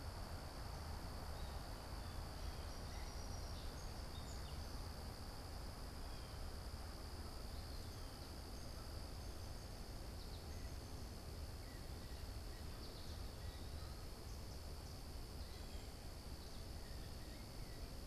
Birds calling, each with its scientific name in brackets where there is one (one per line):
Blue Jay (Cyanocitta cristata)
American Goldfinch (Spinus tristis)
Song Sparrow (Melospiza melodia)
Eastern Wood-Pewee (Contopus virens)